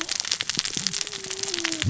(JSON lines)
{"label": "biophony, cascading saw", "recorder": "SoundTrap 600 or HydroMoth"}